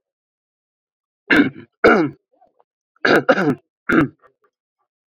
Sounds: Throat clearing